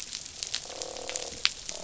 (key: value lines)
label: biophony, croak
recorder: SoundTrap 500